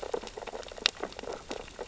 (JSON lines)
{"label": "biophony, sea urchins (Echinidae)", "recorder": "SoundTrap 600 or HydroMoth"}